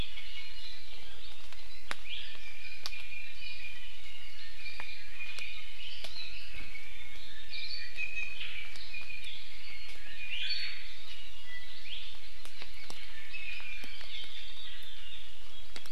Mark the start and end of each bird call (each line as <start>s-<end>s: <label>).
2.0s-3.9s: Iiwi (Drepanis coccinea)
4.3s-5.7s: Iiwi (Drepanis coccinea)
7.3s-9.3s: Iiwi (Drepanis coccinea)
7.5s-7.9s: Hawaii Akepa (Loxops coccineus)
10.1s-11.0s: Iiwi (Drepanis coccinea)
11.7s-12.7s: Hawaii Amakihi (Chlorodrepanis virens)